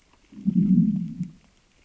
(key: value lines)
label: biophony, growl
recorder: SoundTrap 600 or HydroMoth